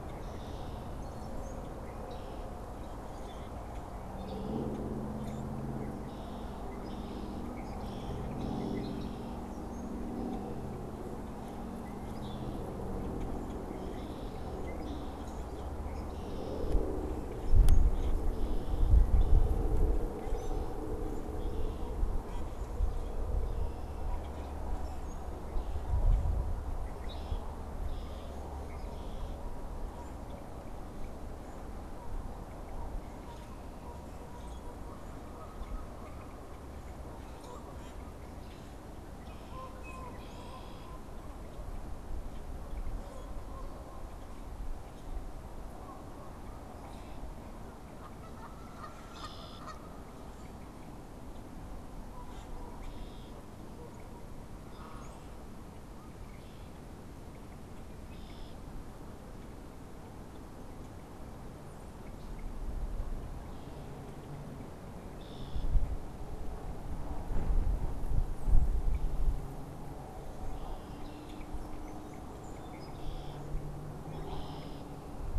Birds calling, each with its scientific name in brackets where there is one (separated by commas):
unidentified bird, Common Grackle (Quiscalus quiscula), Red-winged Blackbird (Agelaius phoeniceus), Canada Goose (Branta canadensis)